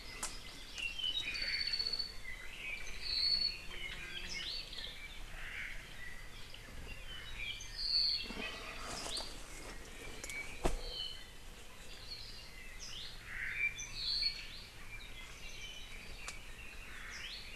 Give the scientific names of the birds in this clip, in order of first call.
Chlorodrepanis virens, Himatione sanguinea, Myadestes obscurus, Loxops mana